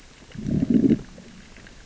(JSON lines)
{"label": "biophony, growl", "recorder": "SoundTrap 600 or HydroMoth"}